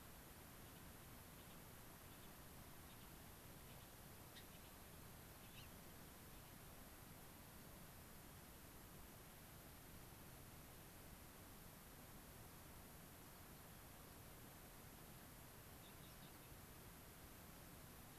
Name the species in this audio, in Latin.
Leucosticte tephrocotis